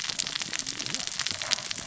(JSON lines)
{"label": "biophony, cascading saw", "recorder": "SoundTrap 600 or HydroMoth"}